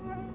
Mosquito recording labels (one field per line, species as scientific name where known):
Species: Anopheles quadriannulatus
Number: one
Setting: insect culture